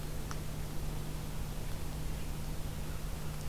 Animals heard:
forest ambience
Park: Acadia National Park